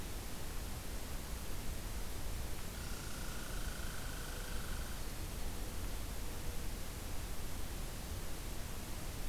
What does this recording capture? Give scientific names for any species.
Tamiasciurus hudsonicus